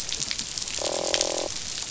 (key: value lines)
label: biophony, croak
recorder: SoundTrap 500